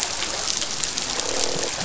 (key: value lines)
label: biophony, croak
recorder: SoundTrap 500